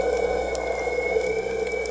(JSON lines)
{"label": "biophony", "recorder": "HydroMoth"}